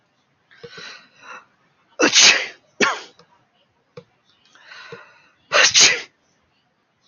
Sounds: Sneeze